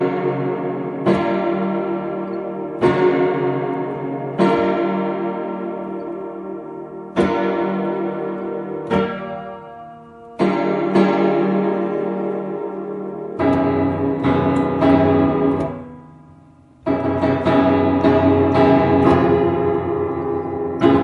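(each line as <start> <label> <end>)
0.1 An electronic piano is being played. 6.4
7.2 An electronic piano is being played. 9.8
10.4 An electronic piano is being played. 16.1
16.9 An electronic piano is being played. 21.0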